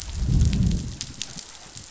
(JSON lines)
{"label": "biophony, growl", "recorder": "SoundTrap 500"}